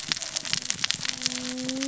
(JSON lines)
{"label": "biophony, cascading saw", "recorder": "SoundTrap 600 or HydroMoth"}